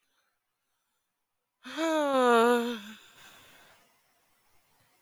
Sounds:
Sigh